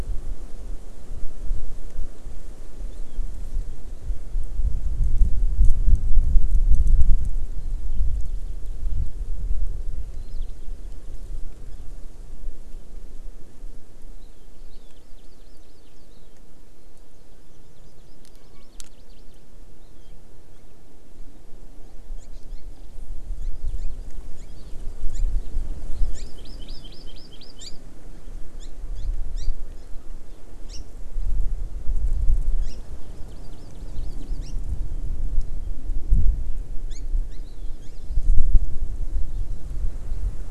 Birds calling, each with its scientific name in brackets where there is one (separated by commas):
Hawaii Amakihi (Chlorodrepanis virens), Warbling White-eye (Zosterops japonicus)